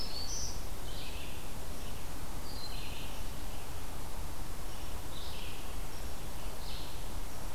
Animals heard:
Red-eyed Vireo (Vireo olivaceus)
Black-throated Green Warbler (Setophaga virens)
Broad-winged Hawk (Buteo platypterus)

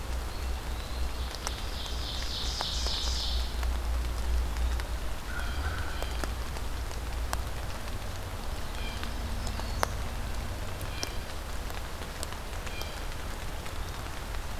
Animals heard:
Blue Jay (Cyanocitta cristata)
Ovenbird (Seiurus aurocapilla)
American Crow (Corvus brachyrhynchos)
Eastern Wood-Pewee (Contopus virens)
Black-throated Green Warbler (Setophaga virens)

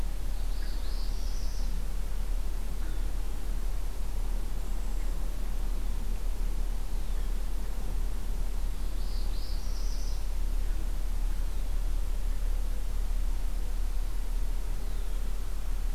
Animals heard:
Red-winged Blackbird (Agelaius phoeniceus)
Northern Parula (Setophaga americana)
Cedar Waxwing (Bombycilla cedrorum)

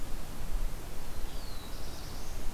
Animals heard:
Black-throated Blue Warbler (Setophaga caerulescens)

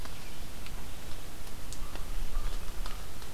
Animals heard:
American Crow (Corvus brachyrhynchos)

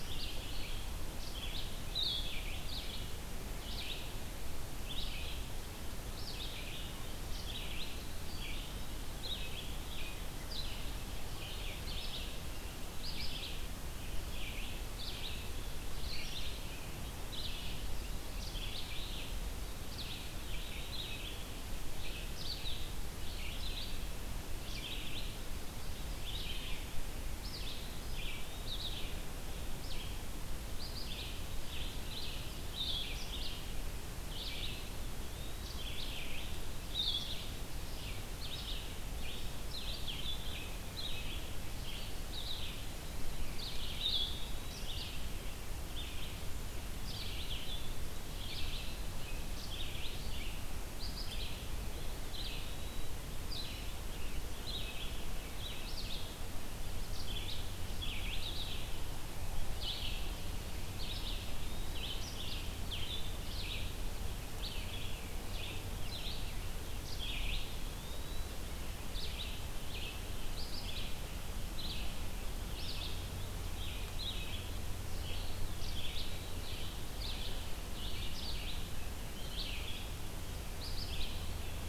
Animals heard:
Red-eyed Vireo (Vireo olivaceus)
Blue-headed Vireo (Vireo solitarius)
Eastern Wood-Pewee (Contopus virens)

